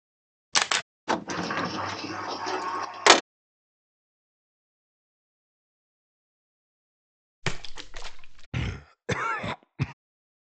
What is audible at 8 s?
splash